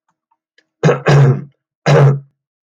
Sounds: Throat clearing